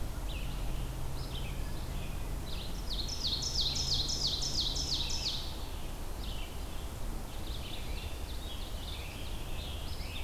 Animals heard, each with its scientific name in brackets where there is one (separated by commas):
Scarlet Tanager (Piranga olivacea), Ovenbird (Seiurus aurocapilla), Red-eyed Vireo (Vireo olivaceus)